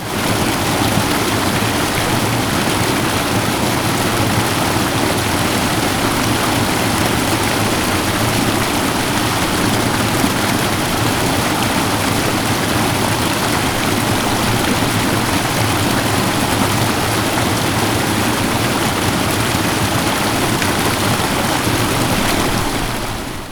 Is there thunder?
no